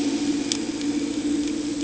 {"label": "anthrophony, boat engine", "recorder": "HydroMoth"}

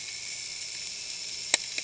{"label": "anthrophony, boat engine", "recorder": "HydroMoth"}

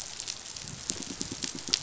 {"label": "biophony, pulse", "recorder": "SoundTrap 500"}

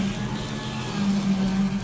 {"label": "anthrophony, boat engine", "recorder": "SoundTrap 500"}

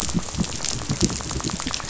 {"label": "biophony, rattle", "recorder": "SoundTrap 500"}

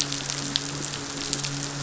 {"label": "biophony, midshipman", "recorder": "SoundTrap 500"}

